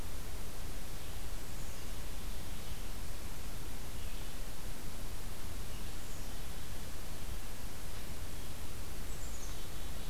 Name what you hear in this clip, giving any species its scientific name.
Vireo olivaceus, Poecile atricapillus